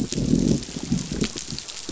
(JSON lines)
{"label": "biophony, growl", "recorder": "SoundTrap 500"}